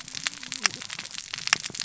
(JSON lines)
{"label": "biophony, cascading saw", "recorder": "SoundTrap 600 or HydroMoth"}